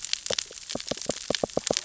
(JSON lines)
{"label": "biophony, knock", "recorder": "SoundTrap 600 or HydroMoth"}